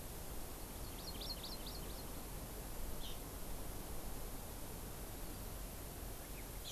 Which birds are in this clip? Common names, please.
Hawaii Amakihi